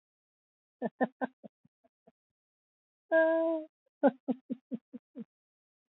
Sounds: Laughter